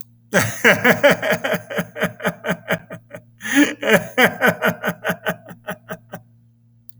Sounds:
Laughter